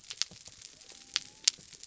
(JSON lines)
{"label": "biophony", "recorder": "SoundTrap 300"}